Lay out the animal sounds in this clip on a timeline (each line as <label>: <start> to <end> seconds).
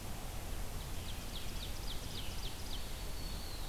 Ovenbird (Seiurus aurocapilla): 0.6 to 3.1 seconds
Red-eyed Vireo (Vireo olivaceus): 1.9 to 3.7 seconds
Black-throated Green Warbler (Setophaga virens): 2.4 to 3.7 seconds